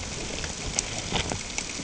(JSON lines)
{"label": "ambient", "recorder": "HydroMoth"}